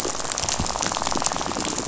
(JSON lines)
{"label": "biophony, rattle", "recorder": "SoundTrap 500"}